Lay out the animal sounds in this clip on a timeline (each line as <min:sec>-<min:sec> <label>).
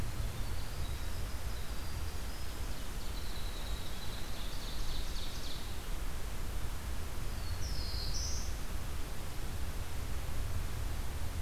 0:00.0-0:05.3 Winter Wren (Troglodytes hiemalis)
0:04.0-0:05.9 Ovenbird (Seiurus aurocapilla)
0:06.9-0:09.0 Black-throated Blue Warbler (Setophaga caerulescens)